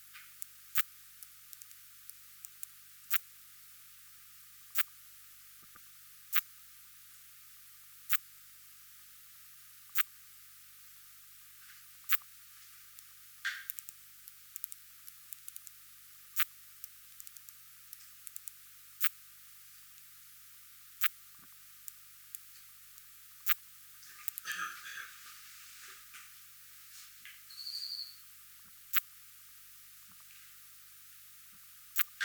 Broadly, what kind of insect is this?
orthopteran